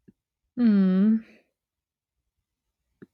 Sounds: Sigh